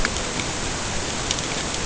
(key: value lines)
label: ambient
recorder: HydroMoth